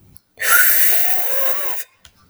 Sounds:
Sniff